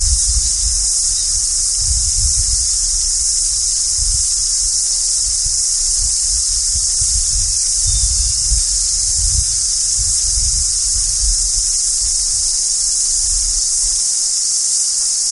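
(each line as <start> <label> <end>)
0.0 An indistinct, high-pitched hissing sound. 15.3
7.7 A bird chirps in the distance. 8.7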